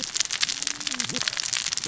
{"label": "biophony, cascading saw", "recorder": "SoundTrap 600 or HydroMoth"}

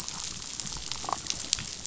{"label": "biophony, damselfish", "recorder": "SoundTrap 500"}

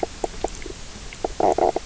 {"label": "biophony, knock croak", "recorder": "SoundTrap 300"}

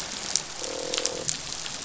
{"label": "biophony, croak", "recorder": "SoundTrap 500"}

